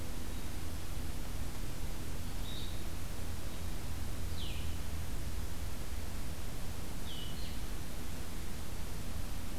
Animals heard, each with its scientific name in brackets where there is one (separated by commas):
Black-capped Chickadee (Poecile atricapillus), Blue-headed Vireo (Vireo solitarius)